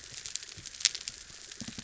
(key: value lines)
label: biophony
recorder: SoundTrap 300